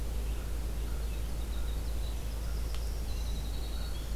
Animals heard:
Winter Wren (Troglodytes hiemalis), Black-throated Green Warbler (Setophaga virens), American Crow (Corvus brachyrhynchos), Red-eyed Vireo (Vireo olivaceus)

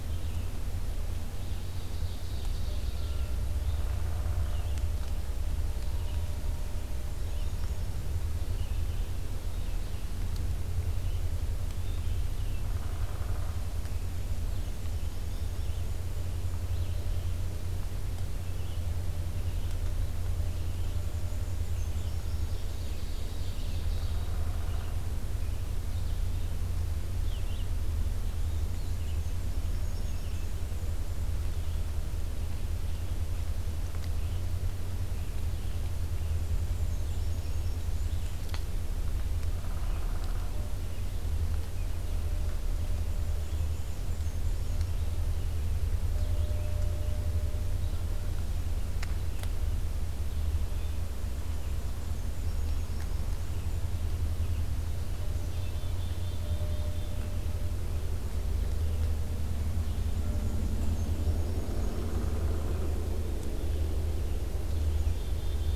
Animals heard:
Black-and-white Warbler (Mniotilta varia), Black-capped Chickadee (Poecile atricapillus), Red-eyed Vireo (Vireo olivaceus), Downy Woodpecker (Dryobates pubescens), Ovenbird (Seiurus aurocapilla)

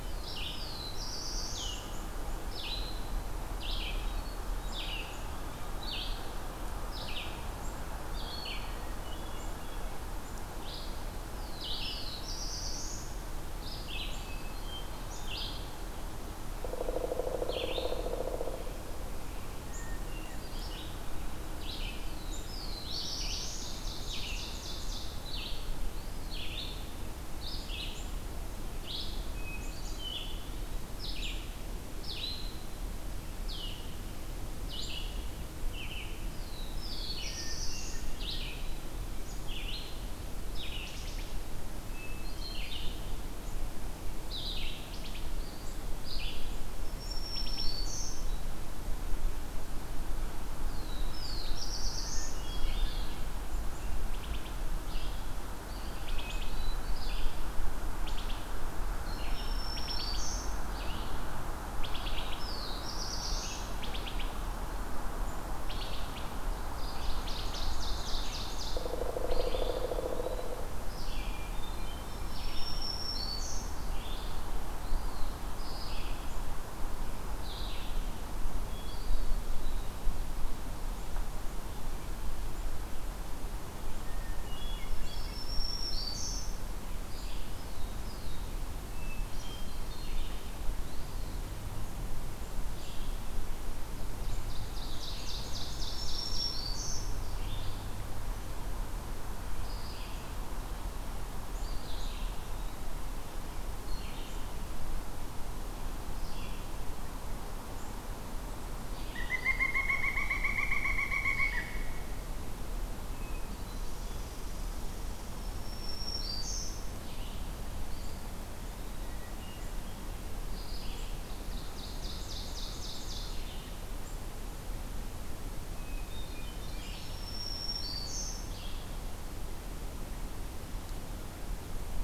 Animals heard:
Black-throated Green Warbler (Setophaga virens), Hermit Thrush (Catharus guttatus), Eastern Wood-Pewee (Contopus virens), Ovenbird (Seiurus aurocapilla), Black-throated Blue Warbler (Setophaga caerulescens), Pileated Woodpecker (Dryocopus pileatus), Wood Thrush (Hylocichla mustelina), Red-eyed Vireo (Vireo olivaceus)

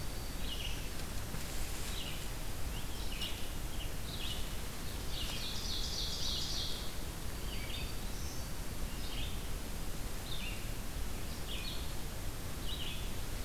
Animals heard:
Red-eyed Vireo (Vireo olivaceus), Black-throated Green Warbler (Setophaga virens), Ovenbird (Seiurus aurocapilla)

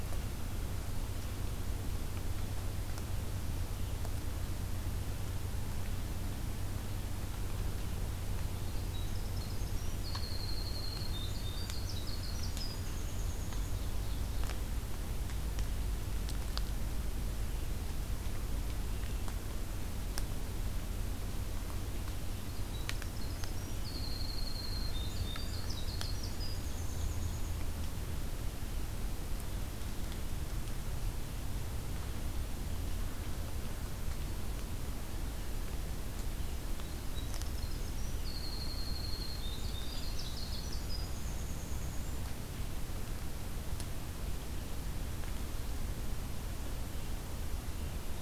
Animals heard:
Ovenbird (Seiurus aurocapilla), Winter Wren (Troglodytes hiemalis)

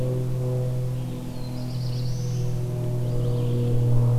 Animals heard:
Black-throated Blue Warbler (Setophaga caerulescens), Red-eyed Vireo (Vireo olivaceus)

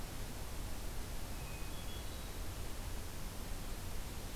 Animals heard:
Hermit Thrush (Catharus guttatus)

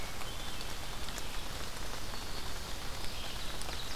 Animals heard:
Hermit Thrush (Catharus guttatus), Ovenbird (Seiurus aurocapilla), Red-eyed Vireo (Vireo olivaceus), Black-throated Green Warbler (Setophaga virens)

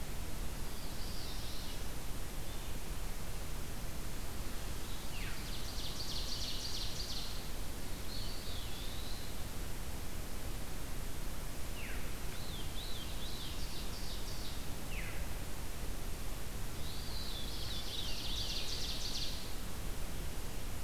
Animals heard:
Veery (Catharus fuscescens), Ovenbird (Seiurus aurocapilla), Eastern Wood-Pewee (Contopus virens)

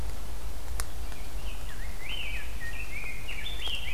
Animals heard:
Rose-breasted Grosbeak (Pheucticus ludovicianus)

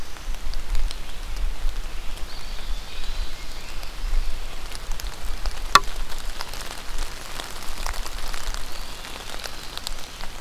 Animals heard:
Eastern Wood-Pewee (Contopus virens)

